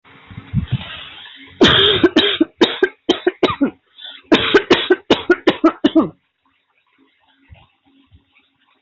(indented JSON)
{
  "expert_labels": [
    {
      "quality": "ok",
      "cough_type": "dry",
      "dyspnea": false,
      "wheezing": false,
      "stridor": false,
      "choking": false,
      "congestion": false,
      "nothing": true,
      "diagnosis": "COVID-19",
      "severity": "mild"
    }
  ],
  "age": 34,
  "gender": "female",
  "respiratory_condition": true,
  "fever_muscle_pain": false,
  "status": "symptomatic"
}